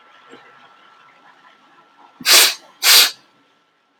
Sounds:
Sniff